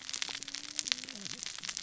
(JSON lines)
{"label": "biophony, cascading saw", "recorder": "SoundTrap 600 or HydroMoth"}